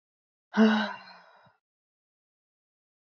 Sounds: Sigh